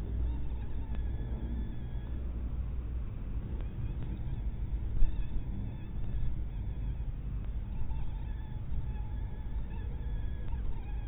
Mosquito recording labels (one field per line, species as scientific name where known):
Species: mosquito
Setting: cup